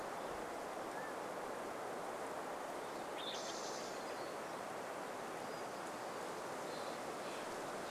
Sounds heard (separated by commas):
Mountain Quail call, Spotted Towhee song, Steller's Jay call, unidentified sound